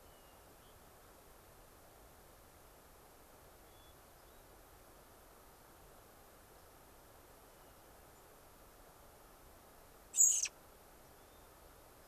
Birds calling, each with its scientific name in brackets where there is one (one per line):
Hermit Thrush (Catharus guttatus)
American Robin (Turdus migratorius)
unidentified bird